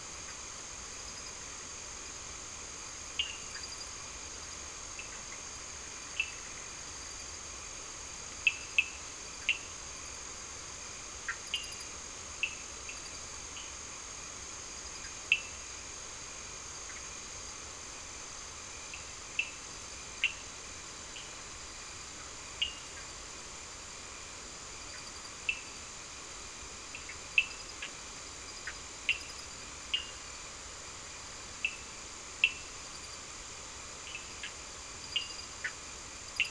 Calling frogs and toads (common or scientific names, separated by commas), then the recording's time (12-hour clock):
Cochran's lime tree frog, Bischoff's tree frog
9:00pm